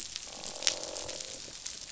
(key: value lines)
label: biophony, croak
recorder: SoundTrap 500